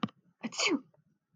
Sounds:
Sneeze